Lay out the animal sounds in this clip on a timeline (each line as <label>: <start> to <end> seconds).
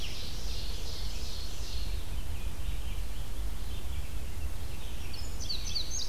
Ovenbird (Seiurus aurocapilla): 0.0 to 2.1 seconds
Red-eyed Vireo (Vireo olivaceus): 0.0 to 5.8 seconds
Indigo Bunting (Passerina cyanea): 5.0 to 6.1 seconds